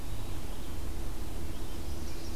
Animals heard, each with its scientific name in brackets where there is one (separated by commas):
Chestnut-sided Warbler (Setophaga pensylvanica)